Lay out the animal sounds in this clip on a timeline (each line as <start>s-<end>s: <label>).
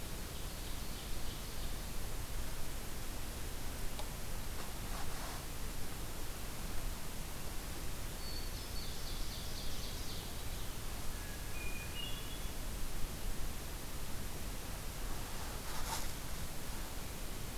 0.0s-2.1s: Ovenbird (Seiurus aurocapilla)
8.1s-9.0s: Hermit Thrush (Catharus guttatus)
8.5s-10.4s: Ovenbird (Seiurus aurocapilla)
11.0s-12.6s: Hermit Thrush (Catharus guttatus)